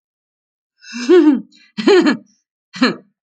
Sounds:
Laughter